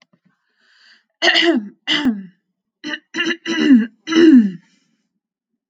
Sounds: Throat clearing